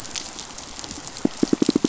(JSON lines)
{"label": "biophony, pulse", "recorder": "SoundTrap 500"}